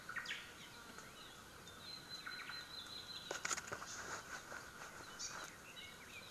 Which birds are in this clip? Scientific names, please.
Myadestes obscurus, Himatione sanguinea, Leiothrix lutea